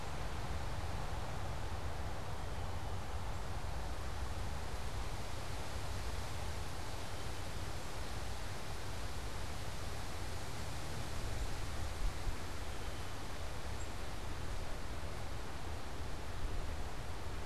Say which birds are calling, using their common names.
unidentified bird